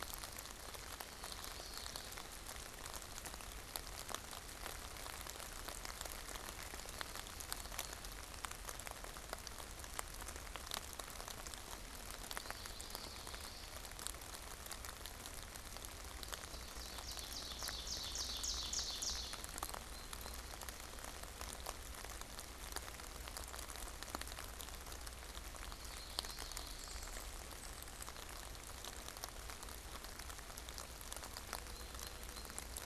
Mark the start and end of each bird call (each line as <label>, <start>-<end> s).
Common Yellowthroat (Geothlypis trichas), 0.8-2.5 s
Common Yellowthroat (Geothlypis trichas), 12.1-14.0 s
Ovenbird (Seiurus aurocapilla), 16.2-19.6 s
unidentified bird, 19.6-20.7 s
Common Yellowthroat (Geothlypis trichas), 25.6-27.6 s
unidentified bird, 31.6-32.8 s